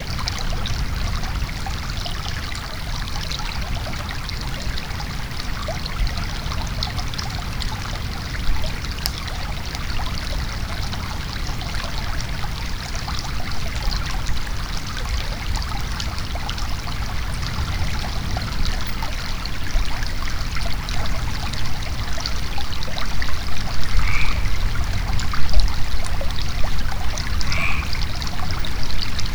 Are people talking nearby?
no